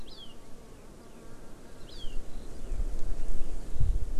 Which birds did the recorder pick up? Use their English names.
Hawaii Amakihi